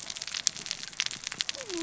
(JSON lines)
{"label": "biophony, cascading saw", "recorder": "SoundTrap 600 or HydroMoth"}